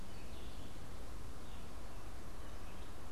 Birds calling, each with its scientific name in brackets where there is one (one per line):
Red-eyed Vireo (Vireo olivaceus)